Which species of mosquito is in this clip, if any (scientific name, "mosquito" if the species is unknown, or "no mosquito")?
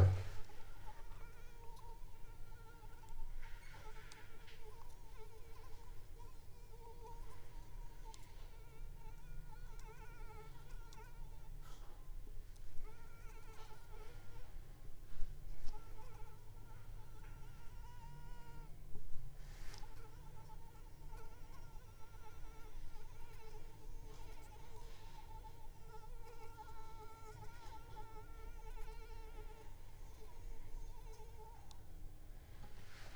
Anopheles arabiensis